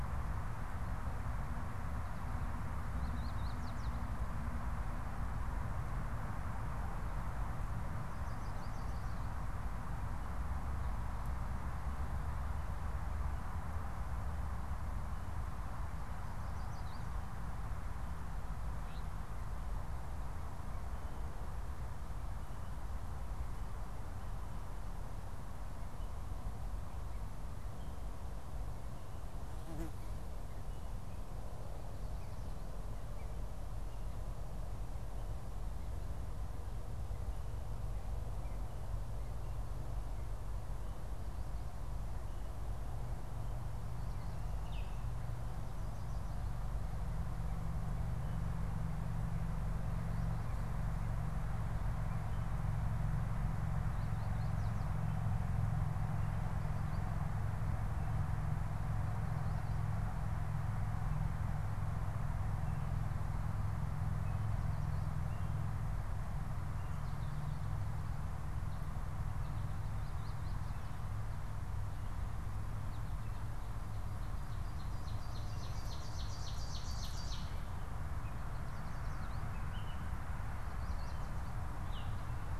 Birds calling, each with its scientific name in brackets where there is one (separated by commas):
Yellow Warbler (Setophaga petechia), unidentified bird, Ovenbird (Seiurus aurocapilla), Baltimore Oriole (Icterus galbula)